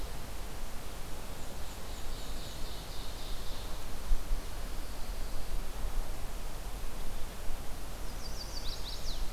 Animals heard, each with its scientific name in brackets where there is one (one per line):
Chestnut-sided Warbler (Setophaga pensylvanica)
Ovenbird (Seiurus aurocapilla)
Black-and-white Warbler (Mniotilta varia)